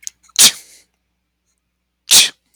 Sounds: Sneeze